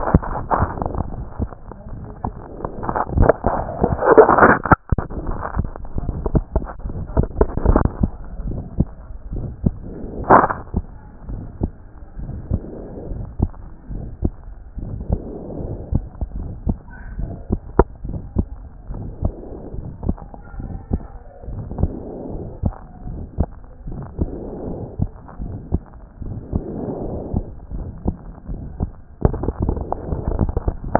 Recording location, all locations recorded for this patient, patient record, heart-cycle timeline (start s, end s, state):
aortic valve (AV)
aortic valve (AV)+aortic valve (AV)+pulmonary valve (PV)+pulmonary valve (PV)+tricuspid valve (TV)+mitral valve (MV)
#Age: Adolescent
#Sex: Female
#Height: 142.0 cm
#Weight: 26.5 kg
#Pregnancy status: False
#Murmur: Present
#Murmur locations: aortic valve (AV)+pulmonary valve (PV)+tricuspid valve (TV)
#Most audible location: tricuspid valve (TV)
#Systolic murmur timing: Holosystolic
#Systolic murmur shape: Decrescendo
#Systolic murmur grading: I/VI
#Systolic murmur pitch: Medium
#Systolic murmur quality: Harsh
#Diastolic murmur timing: nan
#Diastolic murmur shape: nan
#Diastolic murmur grading: nan
#Diastolic murmur pitch: nan
#Diastolic murmur quality: nan
#Outcome: Abnormal
#Campaign: 2014 screening campaign
0.00	11.30	unannotated
11.30	11.42	S1
11.42	11.60	systole
11.60	11.72	S2
11.72	12.22	diastole
12.22	12.34	S1
12.34	12.50	systole
12.50	12.62	S2
12.62	13.12	diastole
13.12	13.24	S1
13.24	13.40	systole
13.40	13.50	S2
13.50	13.92	diastole
13.92	14.04	S1
14.04	14.22	systole
14.22	14.32	S2
14.32	14.82	diastole
14.82	14.96	S1
14.96	15.10	systole
15.10	15.20	S2
15.20	15.62	diastole
15.62	15.74	S1
15.74	15.92	systole
15.92	16.02	S2
16.02	16.38	diastole
16.38	16.50	S1
16.50	16.66	systole
16.66	16.76	S2
16.76	17.18	diastole
17.18	17.30	S1
17.30	17.50	systole
17.50	17.60	S2
17.60	18.08	diastole
18.08	18.20	S1
18.20	18.36	systole
18.36	18.46	S2
18.46	18.92	diastole
18.92	19.02	S1
19.02	19.22	systole
19.22	19.34	S2
19.34	19.76	diastole
19.76	19.88	S1
19.88	20.06	systole
20.06	20.16	S2
20.16	20.60	diastole
20.60	20.70	S1
20.70	20.92	systole
20.92	21.02	S2
21.02	21.52	diastole
21.52	21.64	S1
21.64	21.80	systole
21.80	21.92	S2
21.92	22.32	diastole
22.32	22.46	S1
22.46	22.62	systole
22.62	22.74	S2
22.74	23.08	diastole
23.08	23.20	S1
23.20	23.38	systole
23.38	23.48	S2
23.48	23.90	diastole
23.90	24.02	S1
24.02	24.20	systole
24.20	24.30	S2
24.30	24.66	diastole
24.66	24.80	S1
24.80	25.00	systole
25.00	25.10	S2
25.10	25.42	diastole
25.42	25.52	S1
25.52	25.72	systole
25.72	25.82	S2
25.82	26.26	diastole
26.26	26.38	S1
26.38	26.54	systole
26.54	26.64	S2
26.64	27.06	diastole
27.06	27.20	S1
27.20	27.34	systole
27.34	27.44	S2
27.44	27.74	diastole
27.74	27.86	S1
27.86	28.06	systole
28.06	28.16	S2
28.16	28.50	diastole
28.50	28.60	S1
28.60	28.80	systole
28.80	28.90	S2
28.90	29.24	diastole
29.24	30.99	unannotated